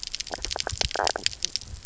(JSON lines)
{"label": "biophony, knock croak", "recorder": "SoundTrap 300"}